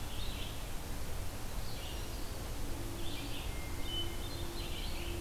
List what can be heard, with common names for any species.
Red-eyed Vireo, Black-throated Green Warbler, Hermit Thrush